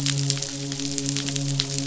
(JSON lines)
{"label": "biophony, midshipman", "recorder": "SoundTrap 500"}